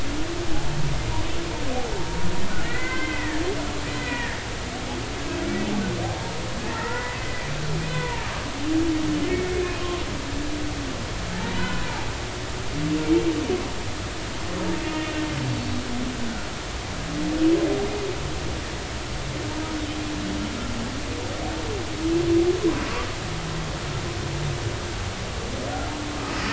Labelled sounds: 2.6	3.4	humpback whale, 0.99 to 3.2 kHz
4.0	4.4	humpback whale, 1.6 to 2.0 kHz
6.7	7.4	humpback whale, 0.86 to 2.1 kHz
7.8	8.3	humpback whale, 0.86 to 2.6 kHz
9.3	9.8	humpback whale, 2.1 to 2.6 kHz
11.3	11.9	humpback whale, 0.83 to 3.1 kHz
15.4	15.7	humpback whale, 4.4 to 4.5 kHz

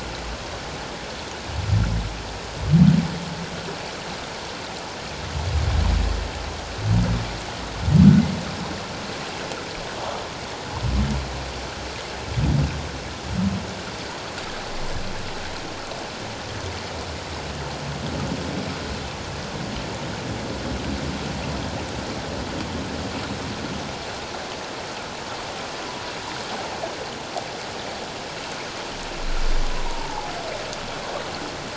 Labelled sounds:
29.9	30.3	humpback whale, 0.78 to 1.0 kHz

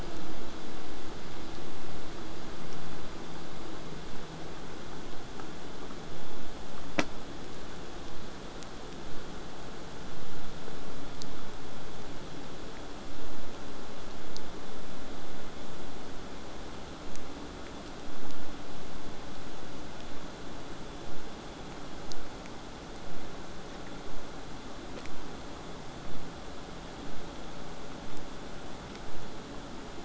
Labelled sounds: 25.0	30.0	vessel noise, 0 to 8.0 kHz

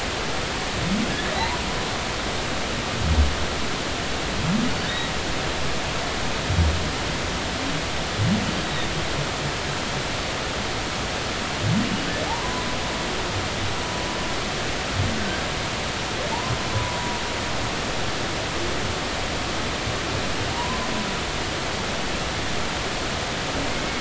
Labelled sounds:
1.4	1.6	humpback whale, 0.80 to 1.1 kHz
8.6	8.9	humpback whale, 3.6 to 3.9 kHz
12.3	12.7	humpback whale, 0.80 to 1.1 kHz
16.7	17.2	humpback whale, 0.93 to 1.1 kHz
20.5	20.9	humpback whale, 0.90 to 1.1 kHz

